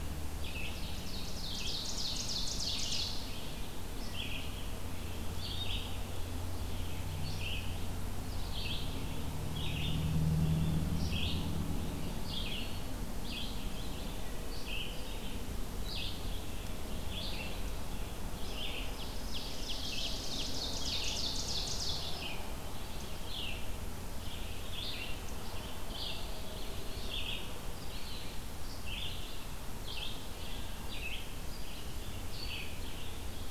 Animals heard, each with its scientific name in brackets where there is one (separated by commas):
Eastern Wood-Pewee (Contopus virens), Red-eyed Vireo (Vireo olivaceus), Ovenbird (Seiurus aurocapilla)